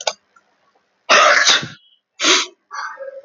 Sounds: Sneeze